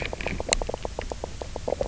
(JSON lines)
{"label": "biophony, knock croak", "recorder": "SoundTrap 300"}